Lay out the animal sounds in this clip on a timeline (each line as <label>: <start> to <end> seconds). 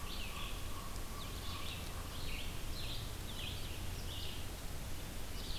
Blue-headed Vireo (Vireo solitarius): 0.0 to 1.5 seconds
American Crow (Corvus brachyrhynchos): 0.0 to 2.3 seconds
Red-eyed Vireo (Vireo olivaceus): 0.0 to 5.6 seconds